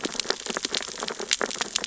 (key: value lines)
label: biophony, sea urchins (Echinidae)
recorder: SoundTrap 600 or HydroMoth